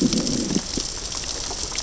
{"label": "biophony, growl", "recorder": "SoundTrap 600 or HydroMoth"}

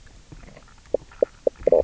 {"label": "biophony, knock croak", "recorder": "SoundTrap 300"}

